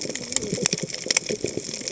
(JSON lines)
{"label": "biophony, cascading saw", "recorder": "HydroMoth"}